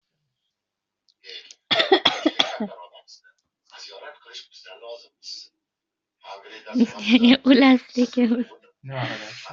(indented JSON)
{
  "expert_labels": [
    {
      "quality": "ok",
      "cough_type": "unknown",
      "dyspnea": false,
      "wheezing": false,
      "stridor": false,
      "choking": false,
      "congestion": false,
      "nothing": true,
      "diagnosis": "healthy cough",
      "severity": "mild"
    }
  ],
  "age": 38,
  "gender": "female",
  "respiratory_condition": false,
  "fever_muscle_pain": false,
  "status": "healthy"
}